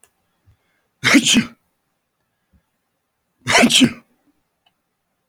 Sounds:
Sneeze